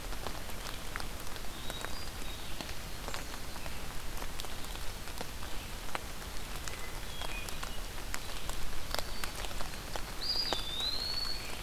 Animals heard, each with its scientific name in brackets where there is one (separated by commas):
Eastern Wood-Pewee (Contopus virens), Hermit Thrush (Catharus guttatus)